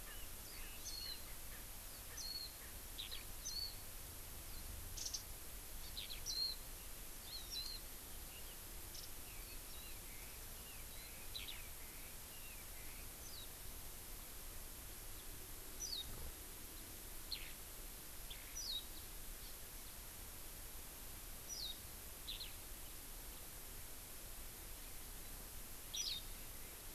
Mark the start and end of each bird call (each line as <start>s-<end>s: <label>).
0.0s-1.6s: Red-billed Leiothrix (Leiothrix lutea)
0.8s-1.2s: Warbling White-eye (Zosterops japonicus)
2.2s-2.5s: Warbling White-eye (Zosterops japonicus)
2.9s-3.2s: Eurasian Skylark (Alauda arvensis)
3.4s-3.7s: Warbling White-eye (Zosterops japonicus)
5.0s-5.2s: Warbling White-eye (Zosterops japonicus)
5.9s-6.2s: Eurasian Skylark (Alauda arvensis)
6.2s-6.5s: Warbling White-eye (Zosterops japonicus)
7.2s-7.6s: Hawaii Amakihi (Chlorodrepanis virens)
7.5s-7.8s: Warbling White-eye (Zosterops japonicus)
8.3s-8.5s: Red-billed Leiothrix (Leiothrix lutea)
8.9s-9.1s: Warbling White-eye (Zosterops japonicus)
9.3s-13.0s: Red-billed Leiothrix (Leiothrix lutea)
9.7s-9.9s: Warbling White-eye (Zosterops japonicus)
11.3s-11.6s: Eurasian Skylark (Alauda arvensis)
13.3s-13.5s: Warbling White-eye (Zosterops japonicus)
15.8s-16.0s: Warbling White-eye (Zosterops japonicus)
18.5s-18.8s: Warbling White-eye (Zosterops japonicus)
21.5s-21.7s: Warbling White-eye (Zosterops japonicus)
22.2s-22.5s: Eurasian Skylark (Alauda arvensis)
25.9s-26.1s: Eurasian Skylark (Alauda arvensis)
26.0s-26.2s: Warbling White-eye (Zosterops japonicus)